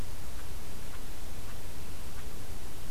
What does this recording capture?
forest ambience